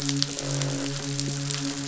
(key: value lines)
label: biophony, croak
recorder: SoundTrap 500

label: biophony, midshipman
recorder: SoundTrap 500